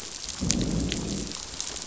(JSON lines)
{"label": "biophony, growl", "recorder": "SoundTrap 500"}